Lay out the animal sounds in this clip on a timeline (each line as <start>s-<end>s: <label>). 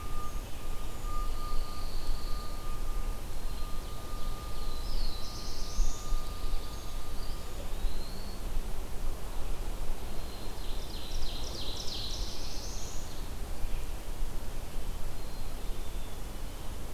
1.1s-2.7s: Pine Warbler (Setophaga pinus)
3.4s-5.6s: Ovenbird (Seiurus aurocapilla)
4.4s-6.4s: Black-throated Blue Warbler (Setophaga caerulescens)
7.0s-8.7s: Eastern Wood-Pewee (Contopus virens)
9.9s-12.8s: Ovenbird (Seiurus aurocapilla)
11.5s-13.3s: Black-throated Blue Warbler (Setophaga caerulescens)
15.0s-16.7s: Black-capped Chickadee (Poecile atricapillus)